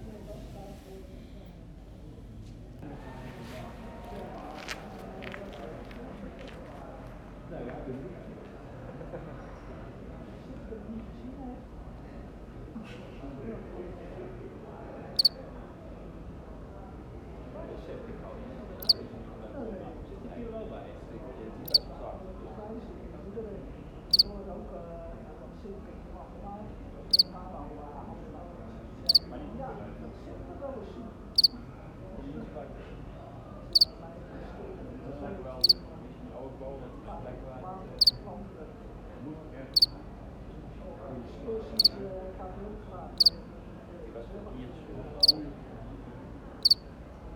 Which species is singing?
Acheta domesticus